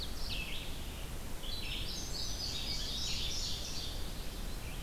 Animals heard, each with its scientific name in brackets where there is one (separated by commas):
Ovenbird (Seiurus aurocapilla), Indigo Bunting (Passerina cyanea), Red-eyed Vireo (Vireo olivaceus)